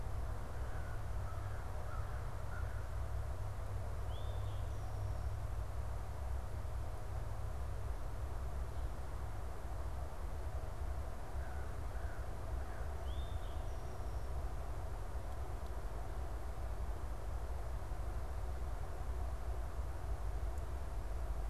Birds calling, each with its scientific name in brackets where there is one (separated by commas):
American Crow (Corvus brachyrhynchos), Eastern Towhee (Pipilo erythrophthalmus)